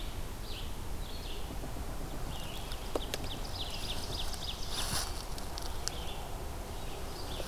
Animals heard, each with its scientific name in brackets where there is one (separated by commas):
Red-eyed Vireo (Vireo olivaceus), Ovenbird (Seiurus aurocapilla)